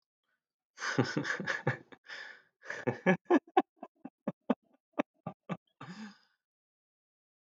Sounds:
Laughter